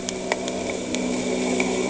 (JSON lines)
{"label": "anthrophony, boat engine", "recorder": "HydroMoth"}